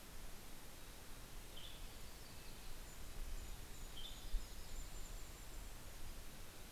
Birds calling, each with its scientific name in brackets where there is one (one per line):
Yellow-rumped Warbler (Setophaga coronata)
Golden-crowned Kinglet (Regulus satrapa)
Western Tanager (Piranga ludoviciana)
Red-breasted Nuthatch (Sitta canadensis)